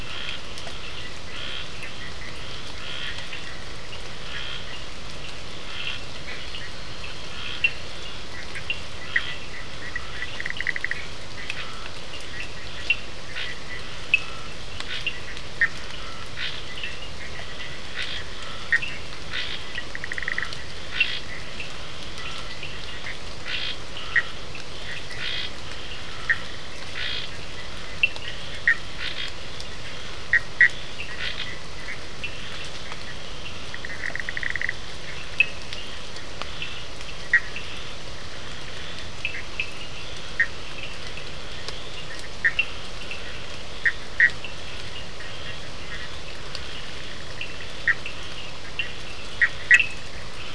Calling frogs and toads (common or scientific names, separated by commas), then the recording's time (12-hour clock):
Scinax perereca, Cochran's lime tree frog, Bischoff's tree frog
10:30pm